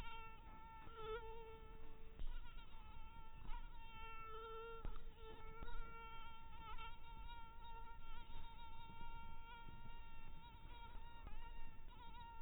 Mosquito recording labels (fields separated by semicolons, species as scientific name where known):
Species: mosquito; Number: one; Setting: cup